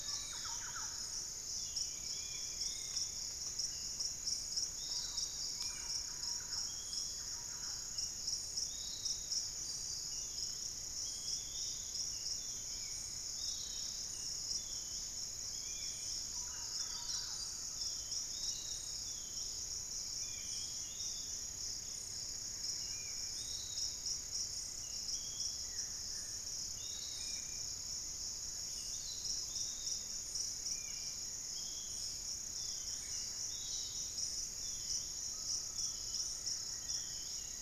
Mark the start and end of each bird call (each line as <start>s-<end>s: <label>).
0.0s-1.4s: Thrush-like Wren (Campylorhynchus turdinus)
0.0s-31.2s: Spot-winged Antshrike (Pygiptila stellaris)
0.0s-37.6s: Long-winged Antwren (Myrmotherula longipennis)
0.0s-37.6s: Piratic Flycatcher (Legatus leucophaius)
2.3s-3.3s: unidentified bird
4.7s-8.0s: Thrush-like Wren (Campylorhynchus turdinus)
16.2s-17.6s: Thrush-like Wren (Campylorhynchus turdinus)
25.5s-26.5s: Buff-throated Woodcreeper (Xiphorhynchus guttatus)
32.5s-33.5s: unidentified bird
35.2s-37.0s: Undulated Tinamou (Crypturellus undulatus)
36.1s-37.6s: Black-faced Antthrush (Formicarius analis)